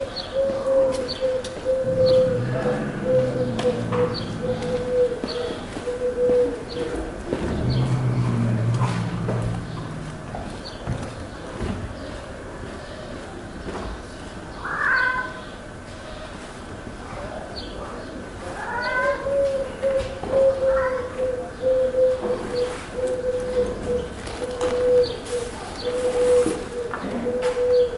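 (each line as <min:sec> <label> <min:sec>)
0:00.5 A cuckoo is calling. 0:07.3
0:02.4 An engine is running in the distance. 0:05.1
0:07.4 An engine is running in the distance. 0:09.4
0:14.7 A cat is meowing. 0:15.3
0:18.6 A cat is meowing. 0:19.2
0:19.3 A cuckoo is calling. 0:28.0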